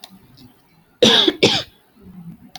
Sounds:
Cough